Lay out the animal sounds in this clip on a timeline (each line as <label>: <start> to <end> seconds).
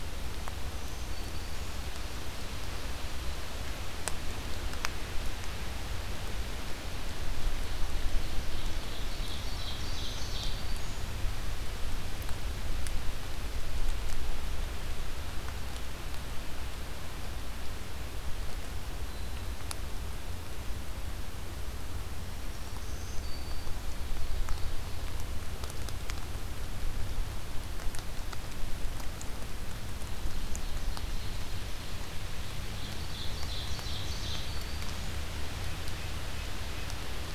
Black-throated Green Warbler (Setophaga virens): 0.6 to 1.8 seconds
Ovenbird (Seiurus aurocapilla): 7.7 to 10.6 seconds
Black-throated Green Warbler (Setophaga virens): 9.4 to 11.1 seconds
Black-throated Green Warbler (Setophaga virens): 18.9 to 19.8 seconds
Black-throated Green Warbler (Setophaga virens): 22.2 to 23.9 seconds
Ovenbird (Seiurus aurocapilla): 23.5 to 25.1 seconds
Ovenbird (Seiurus aurocapilla): 29.8 to 31.5 seconds
Ovenbird (Seiurus aurocapilla): 32.5 to 34.5 seconds
Black-throated Green Warbler (Setophaga virens): 33.9 to 35.1 seconds
Red-breasted Nuthatch (Sitta canadensis): 35.8 to 37.3 seconds